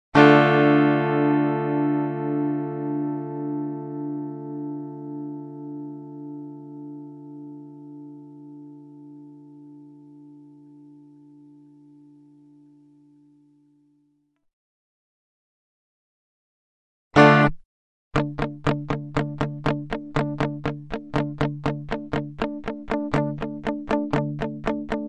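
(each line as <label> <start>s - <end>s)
A chord is played on an electric guitar and fades out melodically. 0.0s - 12.6s
A chord is played choppily on an electric guitar. 17.1s - 17.6s
An electric guitar plays a chugging pattern. 18.1s - 25.1s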